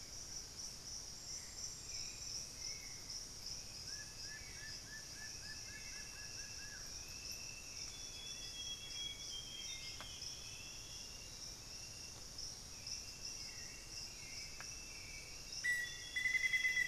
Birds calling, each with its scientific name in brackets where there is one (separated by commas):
Black-faced Antthrush (Formicarius analis), unidentified bird, Hauxwell's Thrush (Turdus hauxwelli), Amazonian Grosbeak (Cyanoloxia rothschildii), Plain-winged Antshrike (Thamnophilus schistaceus)